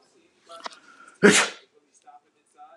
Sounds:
Sneeze